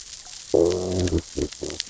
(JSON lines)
{"label": "biophony, growl", "recorder": "SoundTrap 600 or HydroMoth"}